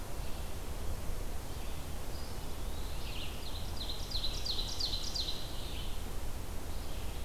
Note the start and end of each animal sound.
[0.00, 7.25] Red-eyed Vireo (Vireo olivaceus)
[2.05, 3.21] Eastern Wood-Pewee (Contopus virens)
[2.88, 5.58] Ovenbird (Seiurus aurocapilla)

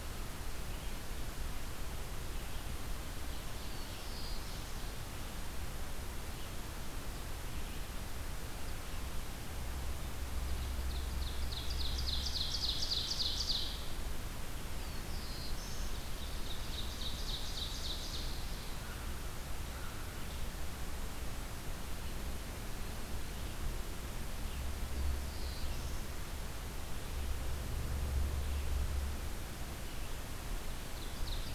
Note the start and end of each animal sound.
[0.00, 7.93] Red-eyed Vireo (Vireo olivaceus)
[3.03, 5.03] Ovenbird (Seiurus aurocapilla)
[3.45, 4.86] Black-throated Blue Warbler (Setophaga caerulescens)
[10.18, 14.17] Ovenbird (Seiurus aurocapilla)
[14.54, 16.06] Black-throated Blue Warbler (Setophaga caerulescens)
[15.96, 18.45] Ovenbird (Seiurus aurocapilla)
[16.01, 31.55] Red-eyed Vireo (Vireo olivaceus)
[18.79, 20.32] American Crow (Corvus brachyrhynchos)
[24.50, 26.05] Black-throated Blue Warbler (Setophaga caerulescens)
[30.69, 31.55] Ovenbird (Seiurus aurocapilla)

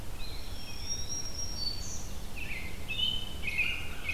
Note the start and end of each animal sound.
[0.00, 1.05] Tufted Titmouse (Baeolophus bicolor)
[0.04, 1.31] Eastern Wood-Pewee (Contopus virens)
[0.40, 2.15] Black-throated Green Warbler (Setophaga virens)
[2.26, 4.14] American Robin (Turdus migratorius)

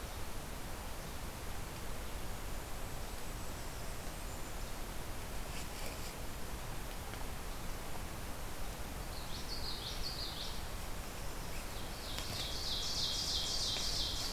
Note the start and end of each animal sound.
[2.19, 4.73] Golden-crowned Kinglet (Regulus satrapa)
[8.96, 10.59] Common Yellowthroat (Geothlypis trichas)
[11.69, 14.33] Ovenbird (Seiurus aurocapilla)

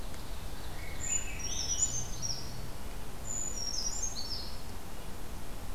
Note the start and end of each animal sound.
[0.00, 1.26] Ovenbird (Seiurus aurocapilla)
[0.00, 5.74] Red-breasted Nuthatch (Sitta canadensis)
[0.46, 2.27] Swainson's Thrush (Catharus ustulatus)
[0.92, 2.54] Brown Creeper (Certhia americana)
[3.21, 4.77] Brown Creeper (Certhia americana)

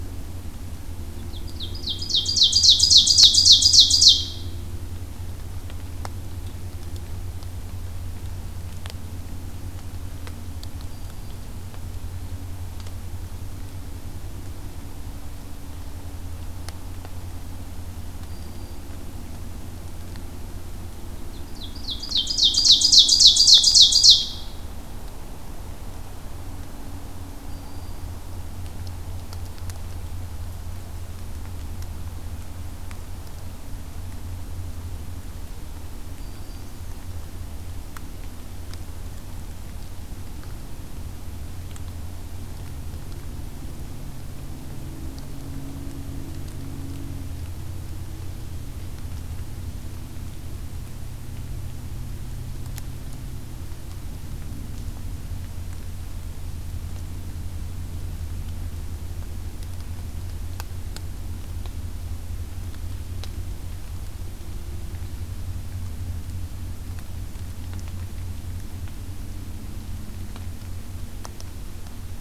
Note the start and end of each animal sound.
[1.11, 4.49] Ovenbird (Seiurus aurocapilla)
[10.65, 11.62] Black-throated Green Warbler (Setophaga virens)
[18.06, 18.98] Black-throated Green Warbler (Setophaga virens)
[21.12, 24.46] Ovenbird (Seiurus aurocapilla)
[27.39, 28.10] Black-throated Green Warbler (Setophaga virens)
[36.09, 36.82] Black-throated Green Warbler (Setophaga virens)

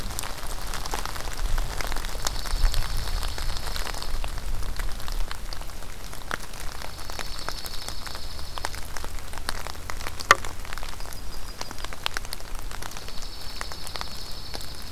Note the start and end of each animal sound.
[2.19, 4.10] Dark-eyed Junco (Junco hyemalis)
[6.86, 8.74] Dark-eyed Junco (Junco hyemalis)
[10.95, 12.00] Yellow-rumped Warbler (Setophaga coronata)
[12.91, 14.91] Dark-eyed Junco (Junco hyemalis)

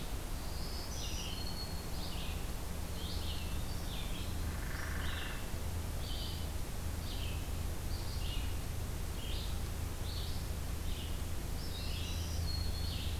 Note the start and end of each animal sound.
[0.00, 13.19] Red-eyed Vireo (Vireo olivaceus)
[0.42, 1.85] Black-throated Green Warbler (Setophaga virens)
[4.49, 5.37] Hairy Woodpecker (Dryobates villosus)
[11.55, 13.05] Black-throated Green Warbler (Setophaga virens)

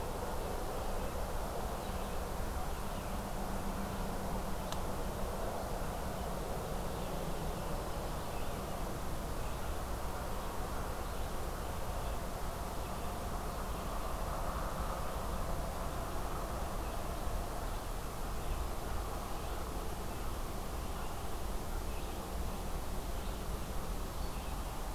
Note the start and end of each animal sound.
[0.00, 24.95] Red-eyed Vireo (Vireo olivaceus)
[17.89, 21.10] American Crow (Corvus brachyrhynchos)

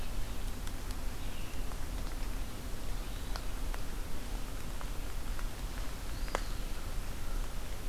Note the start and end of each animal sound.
[1.01, 3.46] Red-eyed Vireo (Vireo olivaceus)
[5.98, 6.65] Eastern Wood-Pewee (Contopus virens)

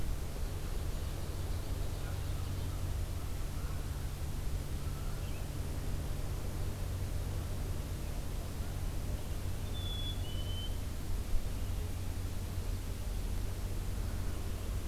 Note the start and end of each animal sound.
[0.68, 2.80] Ovenbird (Seiurus aurocapilla)
[1.99, 5.18] Canada Goose (Branta canadensis)
[5.08, 5.50] Red-eyed Vireo (Vireo olivaceus)
[9.61, 10.87] Black-capped Chickadee (Poecile atricapillus)

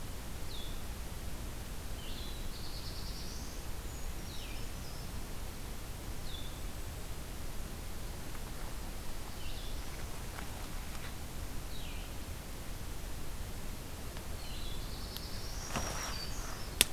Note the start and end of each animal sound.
[0.00, 16.93] Blue-headed Vireo (Vireo solitarius)
[1.87, 3.84] Black-throated Blue Warbler (Setophaga caerulescens)
[3.73, 5.19] Brown Creeper (Certhia americana)
[14.17, 16.10] Black-throated Blue Warbler (Setophaga caerulescens)
[15.21, 16.93] Black-throated Green Warbler (Setophaga virens)

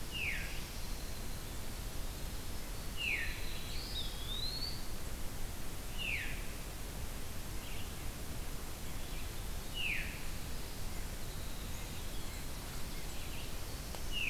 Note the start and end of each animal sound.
[0.00, 0.57] Veery (Catharus fuscescens)
[0.00, 3.65] Winter Wren (Troglodytes hiemalis)
[2.77, 4.38] Black-throated Blue Warbler (Setophaga caerulescens)
[2.89, 3.33] Veery (Catharus fuscescens)
[3.84, 5.11] Eastern Wood-Pewee (Contopus virens)
[5.79, 6.43] Veery (Catharus fuscescens)
[8.26, 9.37] White-breasted Nuthatch (Sitta carolinensis)
[9.68, 10.24] Veery (Catharus fuscescens)
[10.33, 14.29] Winter Wren (Troglodytes hiemalis)
[10.85, 14.29] Golden-crowned Kinglet (Regulus satrapa)
[11.84, 14.29] White-breasted Nuthatch (Sitta carolinensis)
[12.85, 14.29] Red-eyed Vireo (Vireo olivaceus)

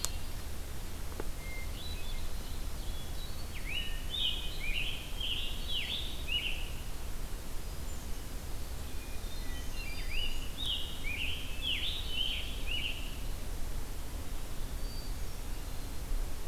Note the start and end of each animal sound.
[1.23, 2.42] Hermit Thrush (Catharus guttatus)
[1.56, 3.25] Ovenbird (Seiurus aurocapilla)
[2.80, 4.08] Hermit Thrush (Catharus guttatus)
[3.52, 6.62] Scarlet Tanager (Piranga olivacea)
[7.49, 8.28] Hermit Thrush (Catharus guttatus)
[8.60, 10.17] Hermit Thrush (Catharus guttatus)
[8.85, 10.53] Black-throated Green Warbler (Setophaga virens)
[9.99, 13.15] Scarlet Tanager (Piranga olivacea)
[14.60, 16.09] Hermit Thrush (Catharus guttatus)

